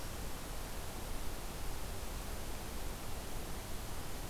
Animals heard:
forest ambience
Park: Acadia National Park